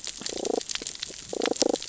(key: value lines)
label: biophony, damselfish
recorder: SoundTrap 600 or HydroMoth